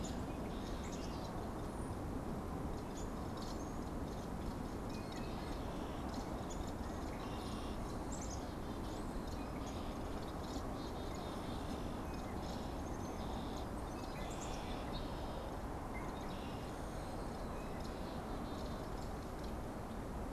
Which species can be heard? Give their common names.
unidentified bird, Black-capped Chickadee, Downy Woodpecker